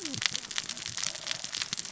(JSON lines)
{"label": "biophony, cascading saw", "recorder": "SoundTrap 600 or HydroMoth"}